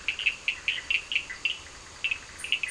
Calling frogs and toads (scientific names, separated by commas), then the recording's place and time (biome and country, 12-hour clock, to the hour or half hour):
Boana bischoffi, Sphaenorhynchus surdus
Atlantic Forest, Brazil, 9:30pm